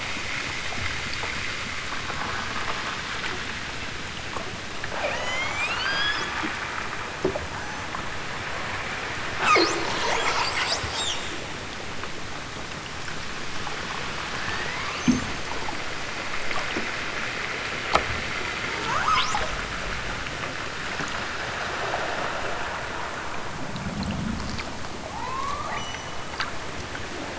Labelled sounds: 4.9	6.3	killer whale, southern Alaska resident, 0.23 to 8.0 kHz
14.3	15.4	killer whale, southern Alaska resident, 0.78 to 7.8 kHz
18.8	19.4	killer whale, southern Alaska resident, 0.60 to 8.0 kHz
25.0	26.3	killer whale, southern Alaska resident, 0.46 to 8.0 kHz

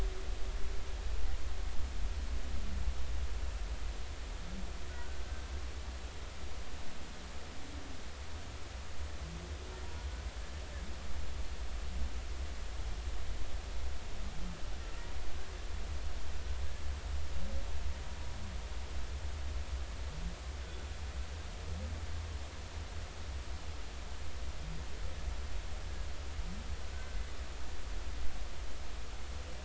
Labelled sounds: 4.9	5.2	humpback whale, 1.4 to 1.6 kHz
26.9	27.2	humpback whale, 1.5 to 1.6 kHz

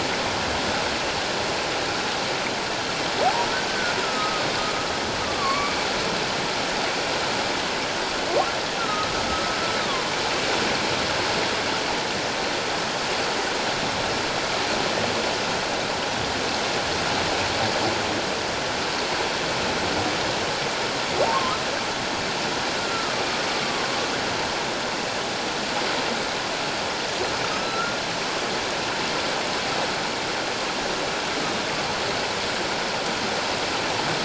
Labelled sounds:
3.7	4.4	humpback whale, 1.2 to 1.6 kHz
5.2	5.8	humpback whale, 1.0 to 2.3 kHz
8.8	9.1	humpback whale, 1.2 to 1.4 kHz
21.2	21.6	humpback whale, 0.84 to 1.1 kHz
22.8	24.0	humpback whale, 1.0 to 1.4 kHz
27.5	28.0	humpback whale, 1.2 to 1.5 kHz

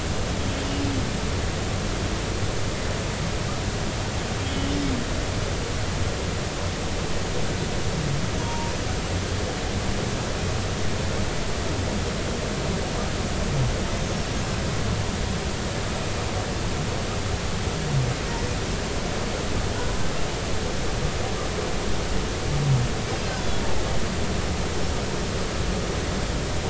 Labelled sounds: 4.5	4.7	humpback whale, 2.9 to 3.1 kHz
8.4	8.8	humpback whale, 0.90 to 1.1 kHz

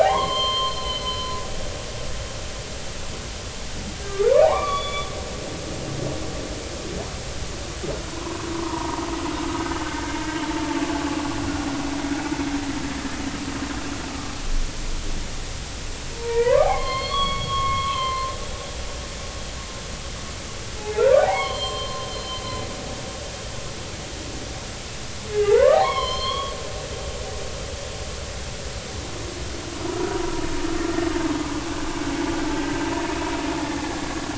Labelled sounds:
0.0	1.4	humpback whale, 0.80 to 4.4 kHz
4.4	5.1	humpback whale, 0.80 to 4.7 kHz
8.1	9.0	humpback whale, 0.86 to 1.2 kHz
16.1	18.3	humpback whale, 0.80 to 4.5 kHz
20.8	22.4	humpback whale, 0.80 to 4.4 kHz
25.3	26.5	humpback whale, 0.80 to 4.4 kHz

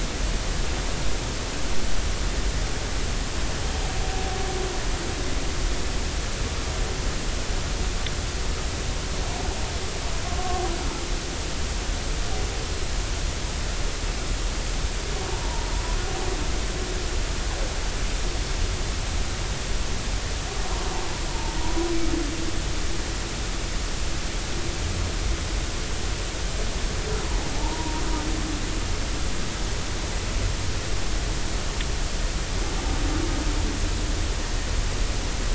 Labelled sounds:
10.4	10.6	humpback whale, 1.0 to 1.2 kHz
15.4	15.7	humpback whale, 0.86 to 1.0 kHz
27.6	28.0	humpback whale, 0.83 to 1.0 kHz

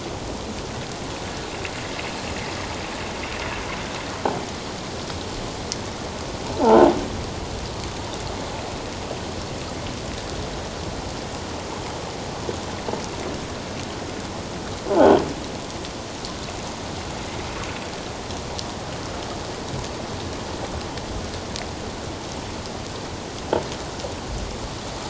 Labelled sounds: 6.6	6.9	croaking sound likely from a nearby submerged object, 0.78 to 1.1 kHz

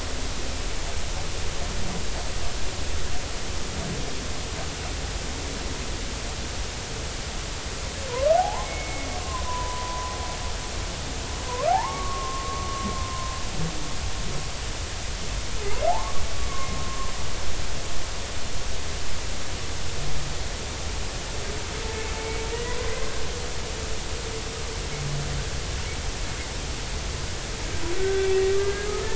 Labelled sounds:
8.4	10.1	humpback whale, 0.80 to 2.3 kHz
11.5	12.9	humpback whale, 0.80 to 1.5 kHz
15.9	16.2	humpback whale, 0.80 to 1.2 kHz
22.2	22.9	humpback whale, 0.93 to 2.3 kHz
28.0	28.9	humpback whale, 1.5 to 2.0 kHz

